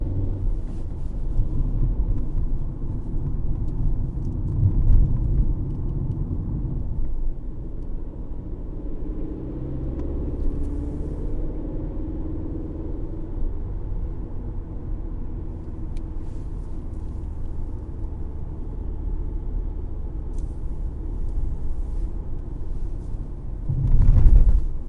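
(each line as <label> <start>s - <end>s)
The sound of a car driving on the road. 0.0s - 24.9s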